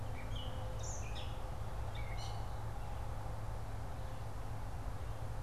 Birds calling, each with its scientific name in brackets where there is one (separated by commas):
Gray Catbird (Dumetella carolinensis)